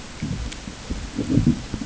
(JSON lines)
{"label": "ambient", "recorder": "HydroMoth"}